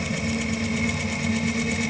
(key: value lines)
label: anthrophony, boat engine
recorder: HydroMoth